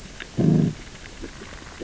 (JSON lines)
{"label": "biophony, growl", "recorder": "SoundTrap 600 or HydroMoth"}